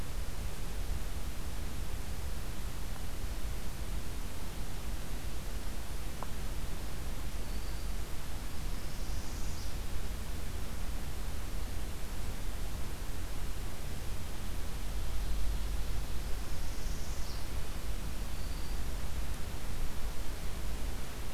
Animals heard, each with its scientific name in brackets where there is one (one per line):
Black-throated Green Warbler (Setophaga virens)
Northern Parula (Setophaga americana)